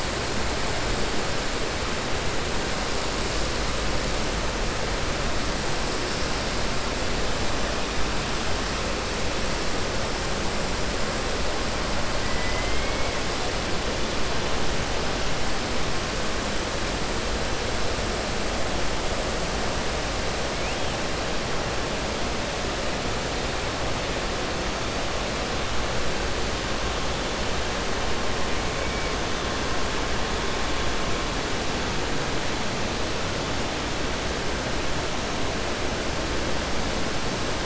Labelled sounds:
12.3	13.1	killer whale, 1.0 to 3.2 kHz

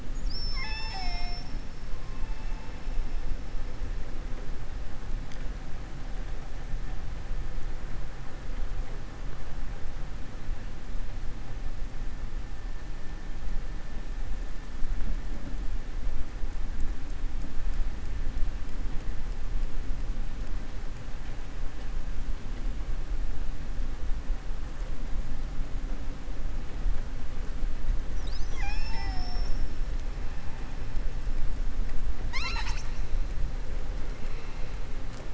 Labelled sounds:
0.0	1.5	killer whale, southern resident, 0.74 to 7.5 kHz

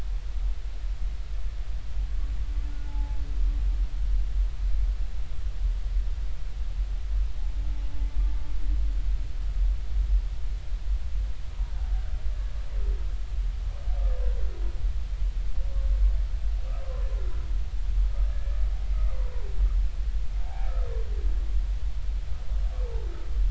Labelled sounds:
2.8	3.2	humpback whale, 0.80 to 0.96 kHz
18.3	18.6	humpback whale, 1.6 to 1.8 kHz
20.4	20.7	humpback whale, 0.80 to 0.93 kHz

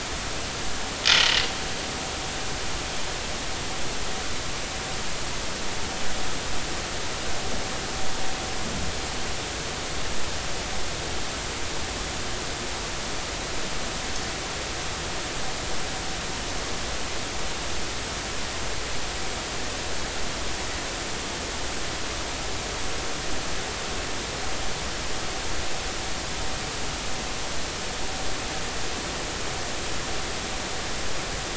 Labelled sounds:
1.1	1.4	vessel noise, 2.8 to 3.2 kHz

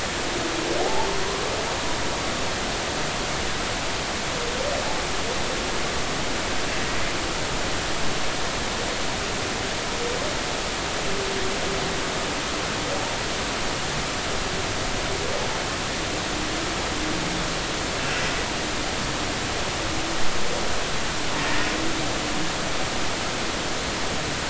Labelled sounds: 0.8	1.1	humpback whale, 0.80 to 0.96 kHz
21.4	21.7	humpback whale, 1.7 to 1.9 kHz

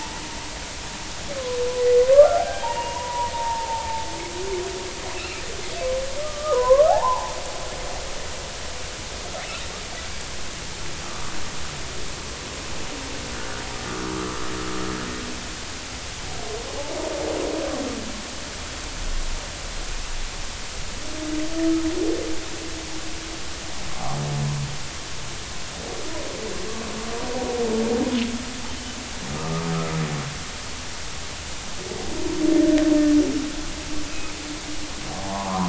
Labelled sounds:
2.1	3.8	humpback whale, 0.80 to 2.9 kHz
5.1	5.4	killer whale, offshore, call OFF30, 2.4 to 2.8 kHz
6.2	7.4	humpback whale, 0.80 to 1.3 kHz
11.0	11.3	humpback whale, 1.1 to 1.3 kHz
29.3	29.7	humpback whale, 1.1 to 1.3 kHz
35.2	35.6	humpback whale, 0.80 to 1.3 kHz

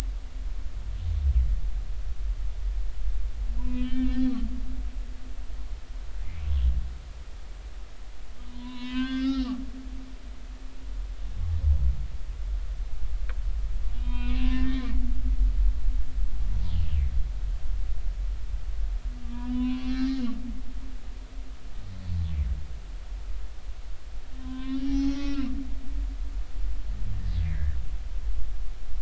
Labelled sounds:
3.6	4.5	humpback whale, 0.93 to 3.7 kHz
8.4	9.6	humpback whale, 0.93 to 5.7 kHz
10.0	10.5	humpback whale, 3.3 to 3.6 kHz
14.0	14.9	humpback whale, 0.93 to 3.7 kHz
19.5	20.3	humpback whale, 0.96 to 4.3 kHz
24.4	25.5	humpback whale, 0.80 to 6.1 kHz
27.4	27.8	humpback whale, 1.6 to 2.5 kHz

